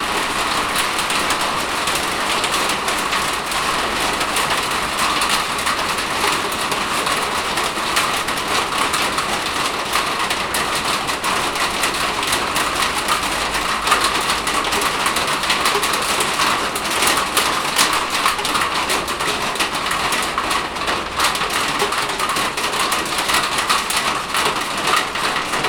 Is this industrial noise?
yes